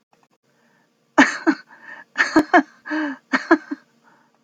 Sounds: Laughter